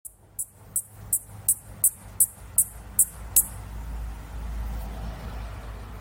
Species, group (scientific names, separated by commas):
Yoyetta celis, Cicadidae